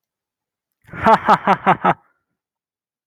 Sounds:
Laughter